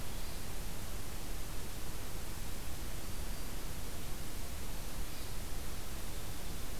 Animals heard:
Hermit Thrush (Catharus guttatus)
Black-throated Green Warbler (Setophaga virens)

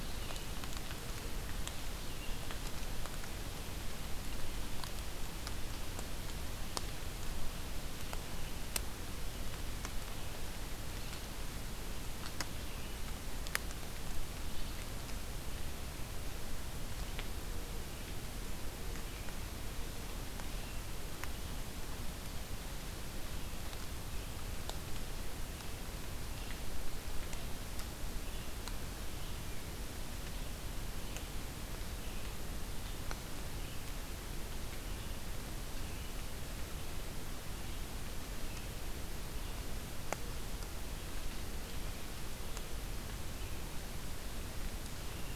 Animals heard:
Red-eyed Vireo (Vireo olivaceus)

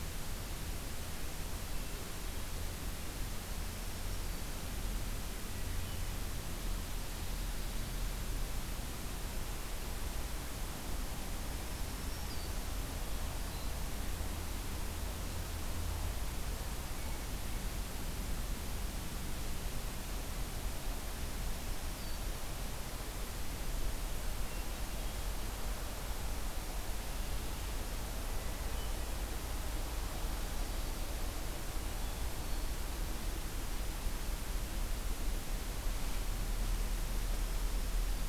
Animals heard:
American Robin (Turdus migratorius)
Black-throated Green Warbler (Setophaga virens)
Hermit Thrush (Catharus guttatus)

